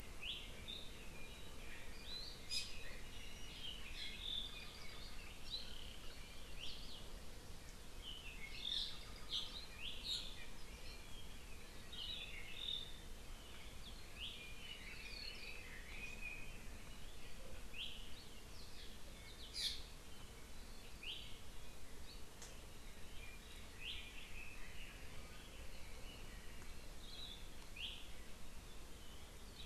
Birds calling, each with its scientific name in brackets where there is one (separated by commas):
Apapane (Himatione sanguinea), Red-billed Leiothrix (Leiothrix lutea), Hawaii Elepaio (Chasiempis sandwichensis), Iiwi (Drepanis coccinea)